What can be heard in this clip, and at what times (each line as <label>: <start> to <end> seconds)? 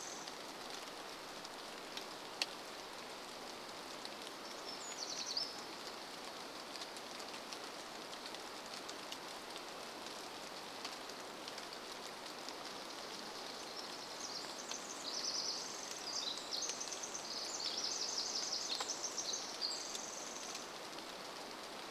Pacific Wren song: 0 to 2 seconds
rain: 0 to 22 seconds
Red-breasted Nuthatch song: 4 to 6 seconds
warbler song: 4 to 6 seconds
Red-breasted Nuthatch song: 10 to 12 seconds
Pacific Wren song: 12 to 22 seconds
Red-breasted Nuthatch song: 14 to 18 seconds